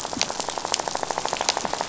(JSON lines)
{"label": "biophony, rattle", "recorder": "SoundTrap 500"}